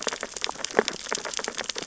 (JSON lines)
{"label": "biophony, sea urchins (Echinidae)", "recorder": "SoundTrap 600 or HydroMoth"}